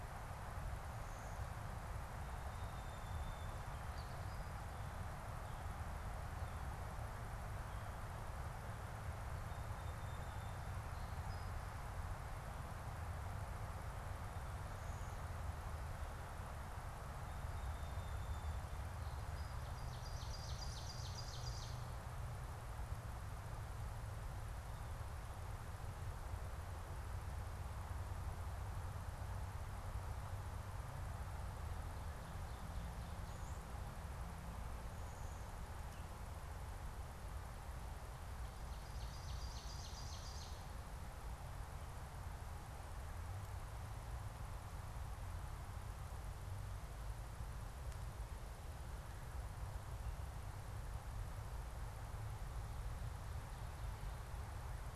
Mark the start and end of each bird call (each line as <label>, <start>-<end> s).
Song Sparrow (Melospiza melodia), 2.3-4.8 s
Song Sparrow (Melospiza melodia), 9.2-11.9 s
Song Sparrow (Melospiza melodia), 16.9-19.9 s
Ovenbird (Seiurus aurocapilla), 19.6-22.2 s
Black-capped Chickadee (Poecile atricapillus), 34.9-35.7 s
Ovenbird (Seiurus aurocapilla), 38.4-41.1 s